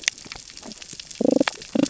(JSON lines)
{"label": "biophony, damselfish", "recorder": "SoundTrap 600 or HydroMoth"}